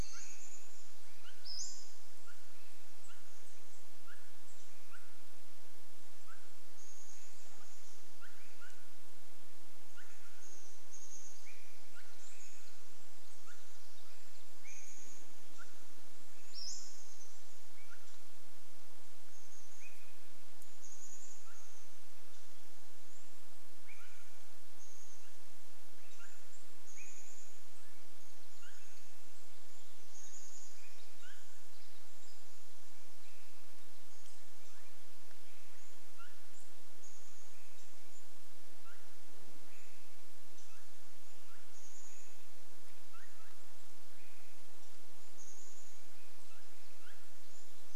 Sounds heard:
Pacific Wren song, Swainson's Thrush call, Pacific-slope Flycatcher call, Chestnut-backed Chickadee call, unidentified bird chip note

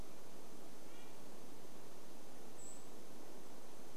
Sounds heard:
Red-breasted Nuthatch song, Golden-crowned Kinglet call

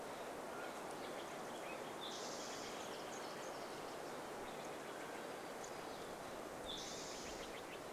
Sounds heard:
unidentified sound, Nashville Warbler song, Spotted Towhee song, Mountain Quail call, unidentified bird chip note, Steller's Jay call

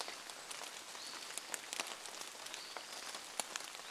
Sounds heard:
Hutton's Vireo song, rain

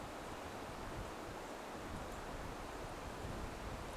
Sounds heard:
unidentified bird chip note

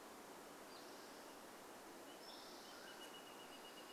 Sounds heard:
Mountain Quail call, Spotted Towhee song, Wrentit song

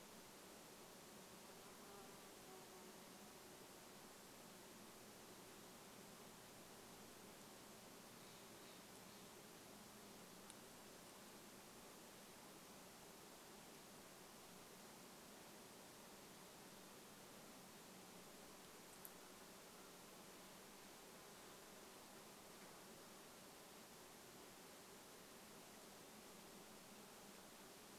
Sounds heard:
Brown Creeper call, Steller's Jay call, insect buzz

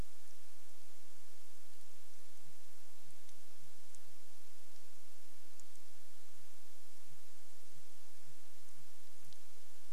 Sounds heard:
Sooty Grouse song

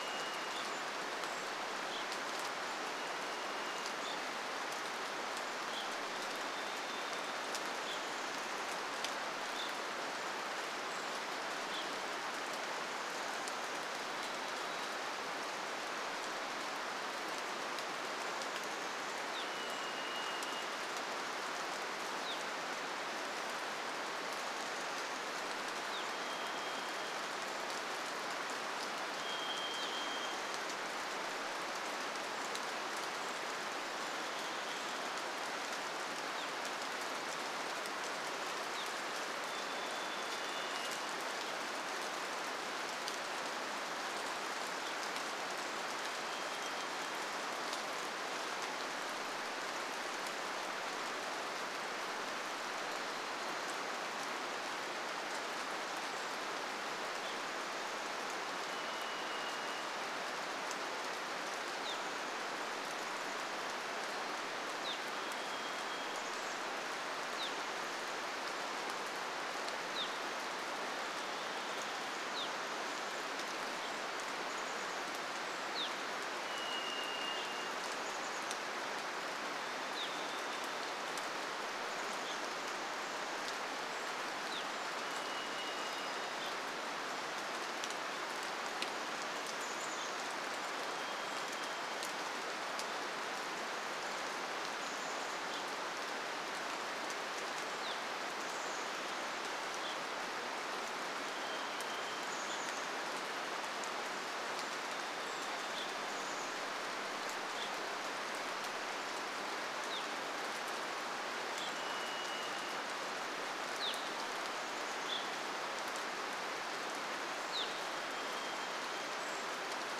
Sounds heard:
Brown Creeper call, Chestnut-backed Chickadee call, rain, Golden-crowned Kinglet call, Evening Grosbeak call, Varied Thrush song

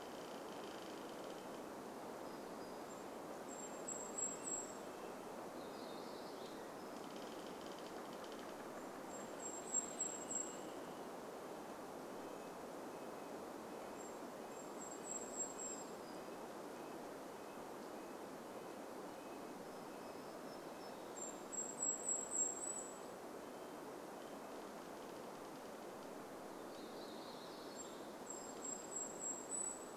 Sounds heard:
Red-breasted Nuthatch song, Varied Thrush song, warbler song, tree creak, Golden-crowned Kinglet song

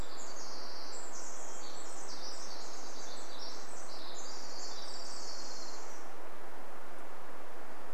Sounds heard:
Pacific Wren song, Hermit Thrush song, Orange-crowned Warbler song

